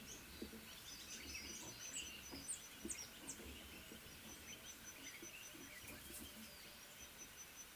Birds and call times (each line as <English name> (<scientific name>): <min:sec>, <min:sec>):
Speckled Mousebird (Colius striatus): 0:02.5